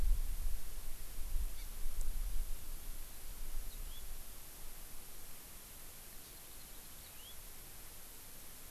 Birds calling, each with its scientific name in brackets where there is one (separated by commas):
Yellow-fronted Canary (Crithagra mozambica)